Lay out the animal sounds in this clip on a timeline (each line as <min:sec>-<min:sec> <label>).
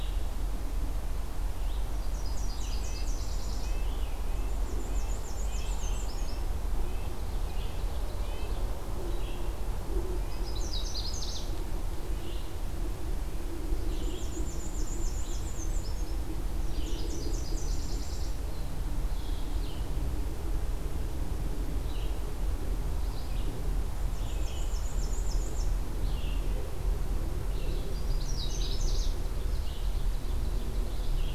0:00.0-0:06.5 Red-eyed Vireo (Vireo olivaceus)
0:01.6-0:03.9 Nashville Warbler (Leiothlypis ruficapilla)
0:02.7-0:08.7 Red-breasted Nuthatch (Sitta canadensis)
0:04.3-0:06.3 Black-and-white Warbler (Mniotilta varia)
0:08.8-0:09.5 Red-eyed Vireo (Vireo olivaceus)
0:09.9-0:11.6 Canada Warbler (Cardellina canadensis)
0:12.0-0:31.3 Red-eyed Vireo (Vireo olivaceus)
0:13.8-0:16.2 Black-and-white Warbler (Mniotilta varia)
0:16.4-0:18.4 Nashville Warbler (Leiothlypis ruficapilla)
0:23.7-0:25.8 Black-and-white Warbler (Mniotilta varia)
0:27.4-0:29.2 Canada Warbler (Cardellina canadensis)
0:29.3-0:31.1 Ovenbird (Seiurus aurocapilla)